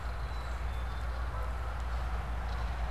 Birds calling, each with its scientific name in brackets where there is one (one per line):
Belted Kingfisher (Megaceryle alcyon)
Canada Goose (Branta canadensis)